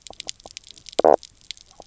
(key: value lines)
label: biophony, knock croak
recorder: SoundTrap 300